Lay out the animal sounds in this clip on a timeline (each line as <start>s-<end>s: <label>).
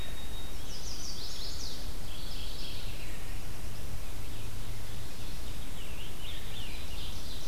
0.0s-1.8s: White-throated Sparrow (Zonotrichia albicollis)
0.0s-7.5s: Red-eyed Vireo (Vireo olivaceus)
0.3s-2.1s: Chestnut-sided Warbler (Setophaga pensylvanica)
1.9s-3.2s: Mourning Warbler (Geothlypis philadelphia)
5.3s-7.3s: Scarlet Tanager (Piranga olivacea)
6.5s-7.5s: Ovenbird (Seiurus aurocapilla)